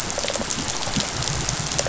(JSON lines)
{"label": "biophony", "recorder": "SoundTrap 500"}